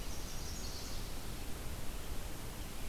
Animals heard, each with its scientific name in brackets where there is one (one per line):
Chestnut-sided Warbler (Setophaga pensylvanica)